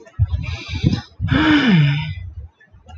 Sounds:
Sigh